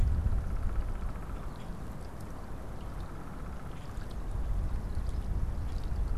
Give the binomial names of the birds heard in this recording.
Dryobates pubescens